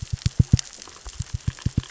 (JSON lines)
{"label": "biophony, knock", "recorder": "SoundTrap 600 or HydroMoth"}